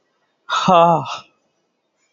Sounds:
Sniff